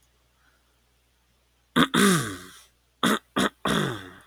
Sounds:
Throat clearing